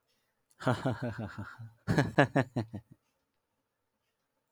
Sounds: Laughter